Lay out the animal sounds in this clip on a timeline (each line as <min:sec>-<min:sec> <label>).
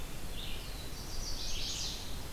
0:00.0-0:02.3 Red-eyed Vireo (Vireo olivaceus)
0:00.1-0:01.8 Black-throated Blue Warbler (Setophaga caerulescens)
0:00.8-0:02.1 Chestnut-sided Warbler (Setophaga pensylvanica)
0:01.8-0:02.3 Ovenbird (Seiurus aurocapilla)